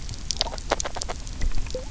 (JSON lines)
{"label": "biophony, grazing", "recorder": "SoundTrap 300"}